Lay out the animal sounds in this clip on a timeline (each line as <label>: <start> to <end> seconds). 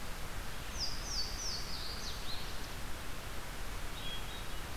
Louisiana Waterthrush (Parkesia motacilla): 0.6 to 2.7 seconds
Hermit Thrush (Catharus guttatus): 3.7 to 4.8 seconds